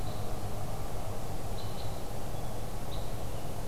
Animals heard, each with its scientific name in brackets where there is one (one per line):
Red Crossbill (Loxia curvirostra)